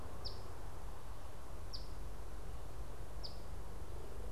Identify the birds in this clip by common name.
Eastern Phoebe